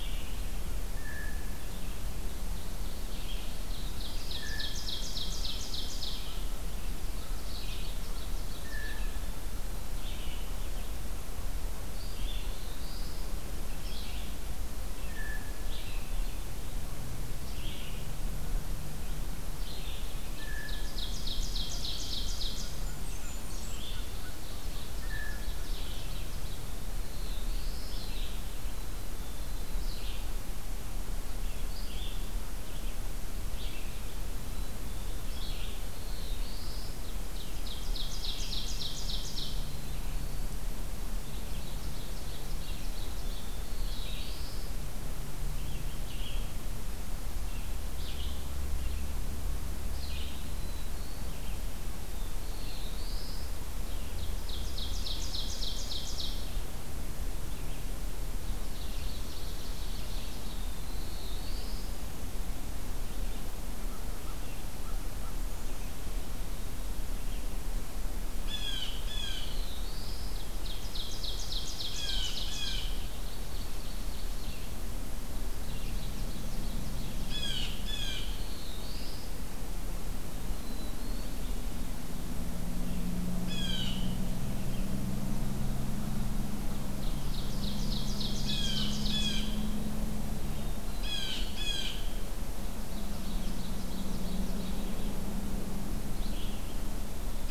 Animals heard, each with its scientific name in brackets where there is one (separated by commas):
Black-capped Chickadee (Poecile atricapillus), Black-throated Green Warbler (Setophaga virens), Blackburnian Warbler (Setophaga fusca), Red-eyed Vireo (Vireo olivaceus), Black-throated Blue Warbler (Setophaga caerulescens), Ovenbird (Seiurus aurocapilla), Blue Jay (Cyanocitta cristata)